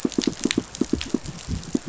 {"label": "biophony, pulse", "recorder": "SoundTrap 500"}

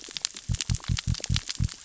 {"label": "biophony", "recorder": "SoundTrap 600 or HydroMoth"}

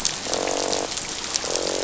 {"label": "biophony, croak", "recorder": "SoundTrap 500"}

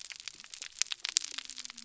{"label": "biophony", "recorder": "SoundTrap 300"}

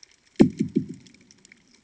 {"label": "anthrophony, bomb", "recorder": "HydroMoth"}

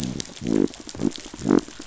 {"label": "biophony", "recorder": "SoundTrap 500"}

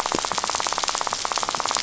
{"label": "biophony, rattle", "recorder": "SoundTrap 500"}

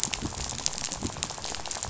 {"label": "biophony, rattle", "recorder": "SoundTrap 500"}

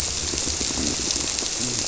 {"label": "biophony", "recorder": "SoundTrap 300"}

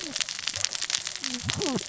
{"label": "biophony, cascading saw", "recorder": "SoundTrap 600 or HydroMoth"}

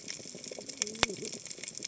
{"label": "biophony, cascading saw", "recorder": "HydroMoth"}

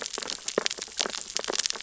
{"label": "biophony, sea urchins (Echinidae)", "recorder": "SoundTrap 600 or HydroMoth"}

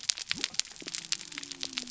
{"label": "biophony", "recorder": "SoundTrap 300"}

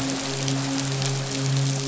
{"label": "biophony, midshipman", "recorder": "SoundTrap 500"}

